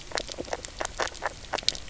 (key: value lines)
label: biophony, knock croak
recorder: SoundTrap 300